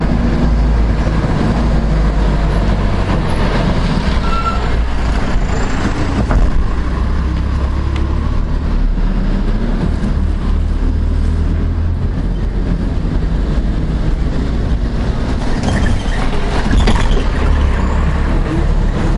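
A heavy truck is driving. 0.0 - 3.1
Truck slowing down. 3.1 - 4.3
A truck braking. 4.3 - 5.0
Truck moving. 5.0 - 15.5
The wheels of a truck whine as they hit a bumpy road. 15.5 - 19.1

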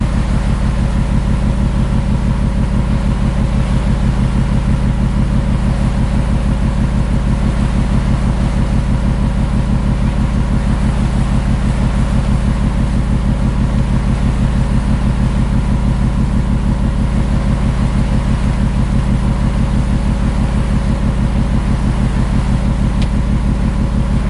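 An engine working steadily on a boat. 0.0 - 24.3
Waves crashing in the sea. 0.0 - 24.3

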